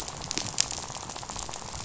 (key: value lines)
label: biophony, rattle
recorder: SoundTrap 500